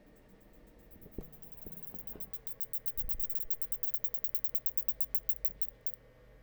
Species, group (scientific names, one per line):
Isophya rectipennis
Orthoptera